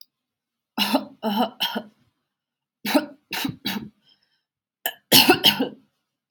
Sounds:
Cough